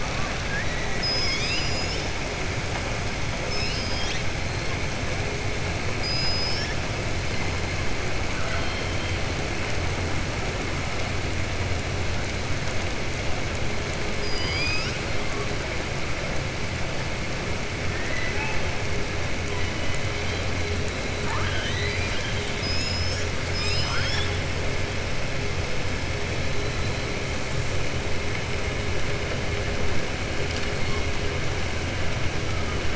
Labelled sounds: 3.4	4.2	killer whale, southern resident, 1.9 to 6.5 kHz
17.9	18.6	killer whale, southern resident, 0.83 to 2.7 kHz

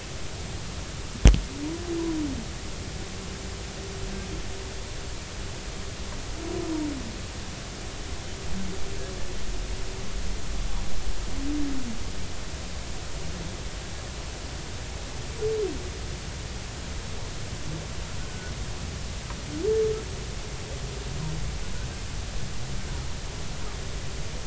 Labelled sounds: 18.3	18.5	humpback whale, 1.4 to 1.6 kHz

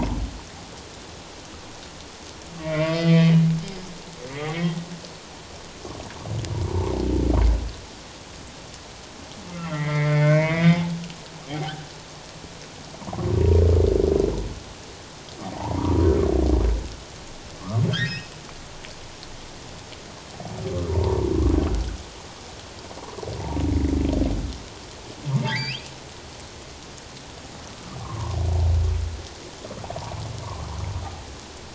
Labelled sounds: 2.6	3.3	humpback whale, 1.0 to 5.3 kHz
4.3	4.7	humpback whale, 1.8 to 2.3 kHz
9.5	10.8	humpback whale, 0.91 to 3.7 kHz
11.5	11.8	humpback whale, 0.78 to 0.94 kHz
13.0	13.3	humpback whale, 0.84 to 1.2 kHz
15.4	15.9	humpback whale, 0.78 to 1.1 kHz
17.9	18.3	humpback whale, 1.4 to 3.8 kHz
20.9	21.2	humpback whale, 0.88 to 1.0 kHz
25.4	25.9	humpback whale, 0.84 to 5.2 kHz
28.0	28.4	humpback whale, 0.88 to 1.3 kHz

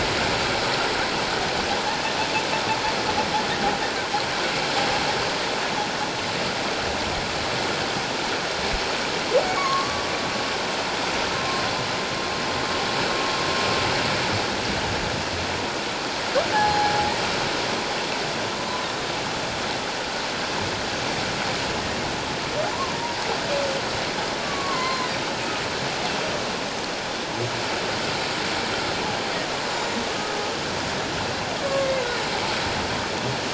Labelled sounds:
9.6	10.0	humpback whale, 1.0 to 1.2 kHz
16.5	16.9	humpback whale, 0.78 to 4.2 kHz
22.7	23.0	humpback whale, 0.91 to 1.2 kHz
24.4	25.1	humpback whale, 0.97 to 4.2 kHz
29.7	30.0	humpback whale, 7.0 to 7.2 kHz
31.6	31.9	humpback whale, 1.0 to 1.2 kHz

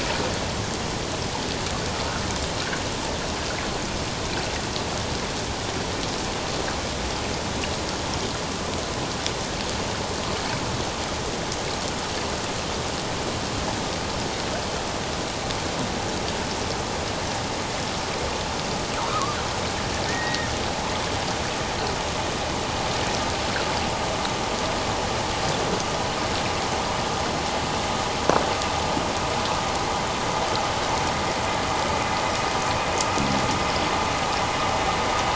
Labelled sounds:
19.1	19.4	killer whale, offshore, 1.0 to 1.4 kHz
20.1	20.5	killer whale, offshore, 1.7 to 1.9 kHz

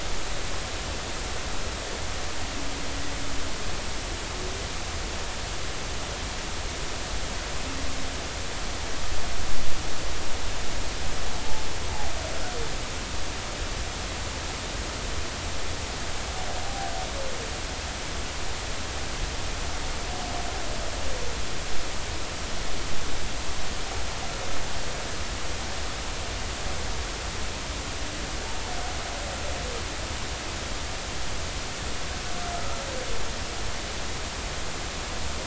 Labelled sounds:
16.6	16.9	humpback whale, 0.80 to 0.83 kHz

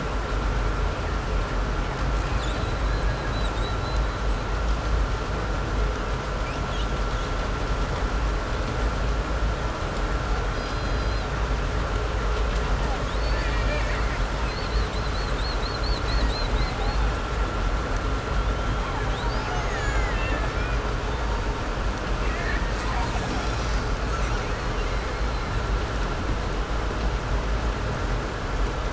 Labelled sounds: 2.0	4.6	killer whale, 1.4 to 8.0 kHz
6.0	7.4	killer whale, 2.0 to 6.9 kHz
10.4	11.5	killer whale, 2.0 to 6.0 kHz
12.7	17.3	killer whale, 1.5 to 8.0 kHz
18.2	21.0	killer whale, Bigg's (transient), 0.67 to 7.6 kHz
21.9	25.8	killer whale, 0.59 to 8.0 kHz

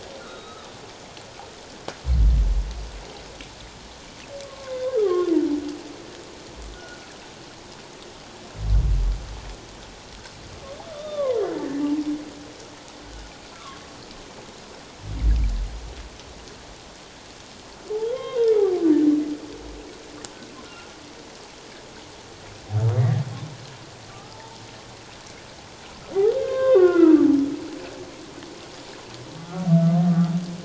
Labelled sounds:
0.2	0.6	humpback whale, 1.1 to 3.9 kHz
4.4	5.3	humpback whale, 1.0 to 1.3 kHz
6.7	7.0	humpback whale, 1.4 to 1.5 kHz
10.9	11.4	humpback whale, 0.91 to 3.8 kHz
13.5	13.8	humpback whale, 1.0 to 1.4 kHz
18.1	18.5	humpback whale, 1.0 to 2.2 kHz
20.6	20.9	humpback whale, 1.3 to 1.5 kHz
22.9	23.2	humpback whale, 1.6 to 2.0 kHz
24.1	24.6	humpback whale, 0.78 to 1.3 kHz
26.4	27.3	humpback whale, 0.97 to 3.8 kHz
29.4	29.6	humpback whale, 1.1 to 1.4 kHz

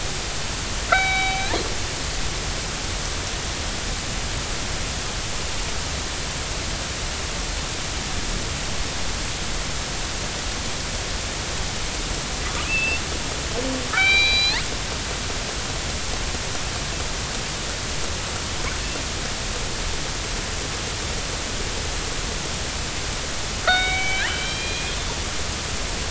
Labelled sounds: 0.9	1.5	killer whale, northern resident, G clan, 0.80 to 3.9 kHz
12.6	13.0	killer whale, northern resident, G clan, 2.4 to 2.8 kHz
13.9	14.6	killer whale, northern resident, G clan, 1.2 to 5.5 kHz
23.6	24.9	killer whale, northern resident, G clan, 1.2 to 4.5 kHz

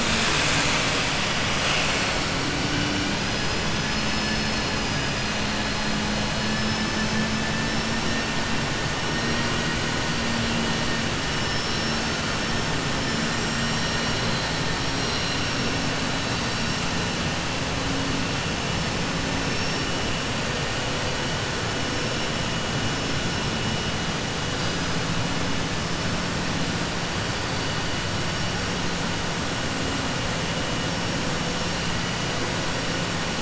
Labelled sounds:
3.8	4.8	vessel noise, 4.2 to 6.1 kHz
6.4	7.2	vessel noise, 4.3 to 6.1 kHz

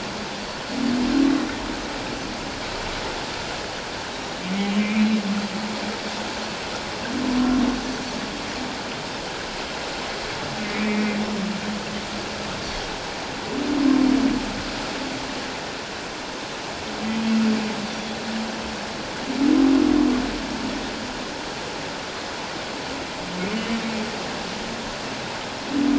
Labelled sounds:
8.9	9.2	Pacific white-sided dolphin, 3.6 to 3.8 kHz
10.6	11.2	humpback whale, 1.9 to 2.5 kHz

